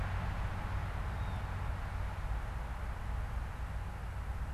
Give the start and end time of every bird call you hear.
1.0s-1.6s: unidentified bird

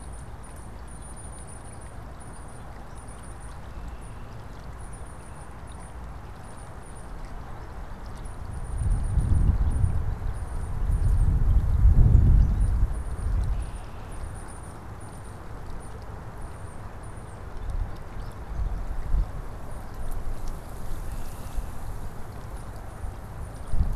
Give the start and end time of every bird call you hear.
0.0s-24.0s: Tufted Titmouse (Baeolophus bicolor)
13.1s-14.3s: Red-winged Blackbird (Agelaius phoeniceus)
20.8s-21.8s: Red-winged Blackbird (Agelaius phoeniceus)

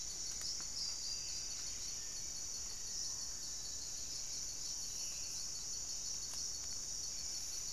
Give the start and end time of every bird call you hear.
0.0s-1.9s: unidentified bird
0.0s-7.7s: Buff-breasted Wren (Cantorchilus leucotis)
2.0s-3.9s: Black-faced Antthrush (Formicarius analis)
4.8s-7.7s: Black-spotted Bare-eye (Phlegopsis nigromaculata)

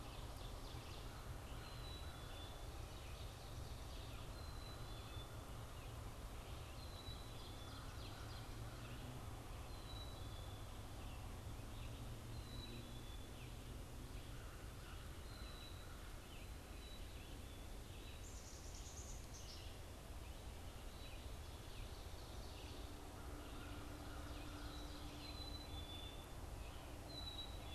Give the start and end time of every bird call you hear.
0.0s-27.7s: Black-capped Chickadee (Poecile atricapillus)
0.0s-27.7s: Red-eyed Vireo (Vireo olivaceus)
6.6s-8.9s: Ovenbird (Seiurus aurocapilla)
22.9s-25.3s: American Crow (Corvus brachyrhynchos)

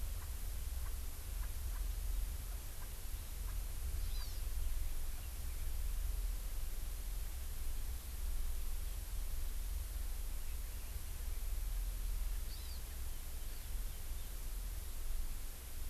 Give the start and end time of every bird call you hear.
0.1s-0.3s: Kalij Pheasant (Lophura leucomelanos)
0.8s-1.0s: Kalij Pheasant (Lophura leucomelanos)
1.4s-1.8s: Kalij Pheasant (Lophura leucomelanos)
2.8s-2.9s: Kalij Pheasant (Lophura leucomelanos)
3.4s-3.5s: Kalij Pheasant (Lophura leucomelanos)
4.0s-4.4s: Hawaii Amakihi (Chlorodrepanis virens)
4.1s-4.3s: Kalij Pheasant (Lophura leucomelanos)
12.5s-12.8s: Hawaii Amakihi (Chlorodrepanis virens)

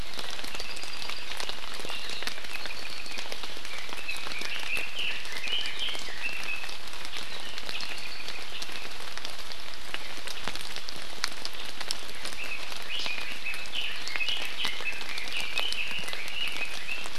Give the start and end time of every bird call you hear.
0.5s-1.3s: Apapane (Himatione sanguinea)
2.5s-3.2s: Apapane (Himatione sanguinea)
3.6s-6.7s: Red-billed Leiothrix (Leiothrix lutea)
7.7s-8.4s: Apapane (Himatione sanguinea)
12.3s-17.1s: Red-billed Leiothrix (Leiothrix lutea)

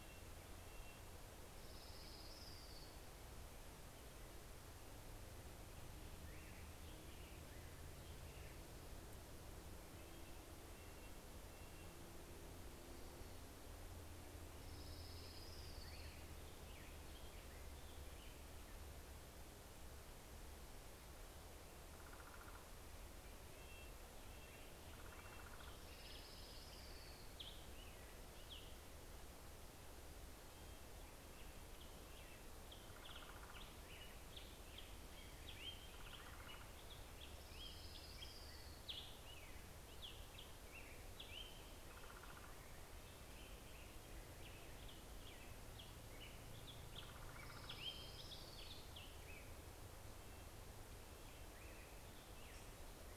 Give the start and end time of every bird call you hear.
0.0s-1.1s: Red-breasted Nuthatch (Sitta canadensis)
0.4s-4.0s: Orange-crowned Warbler (Leiothlypis celata)
9.8s-12.4s: Red-breasted Nuthatch (Sitta canadensis)
14.2s-18.2s: Orange-crowned Warbler (Leiothlypis celata)
15.3s-19.2s: American Robin (Turdus migratorius)
21.0s-23.4s: Common Raven (Corvus corax)
23.4s-26.7s: Red-breasted Nuthatch (Sitta canadensis)
25.4s-27.9s: Orange-crowned Warbler (Leiothlypis celata)
29.6s-32.6s: Red-breasted Nuthatch (Sitta canadensis)
31.7s-49.0s: Common Raven (Corvus corax)
32.9s-51.6s: Red-breasted Nuthatch (Sitta canadensis)
36.4s-39.7s: Orange-crowned Warbler (Leiothlypis celata)
46.5s-49.4s: Orange-crowned Warbler (Leiothlypis celata)
50.3s-53.2s: Black-headed Grosbeak (Pheucticus melanocephalus)

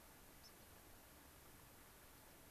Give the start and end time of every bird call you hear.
0.3s-0.6s: unidentified bird

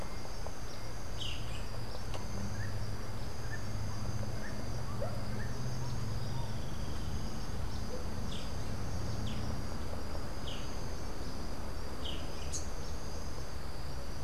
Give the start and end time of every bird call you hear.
0.8s-12.3s: Boat-billed Flycatcher (Megarynchus pitangua)
1.8s-6.9s: Rufous-naped Wren (Campylorhynchus rufinucha)

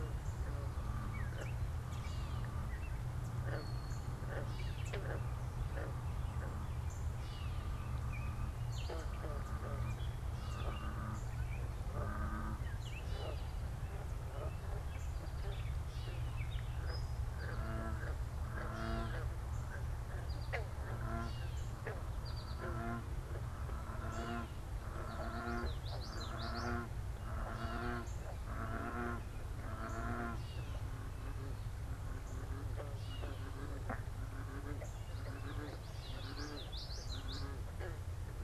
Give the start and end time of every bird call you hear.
0.0s-38.4s: Gray Catbird (Dumetella carolinensis)
0.1s-32.7s: unidentified bird
16.7s-22.9s: American Goldfinch (Spinus tristis)
25.1s-27.1s: Common Yellowthroat (Geothlypis trichas)
34.8s-38.4s: unidentified bird
35.3s-37.7s: Common Yellowthroat (Geothlypis trichas)

